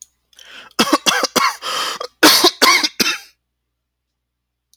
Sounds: Cough